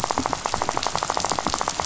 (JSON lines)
{"label": "biophony, rattle", "recorder": "SoundTrap 500"}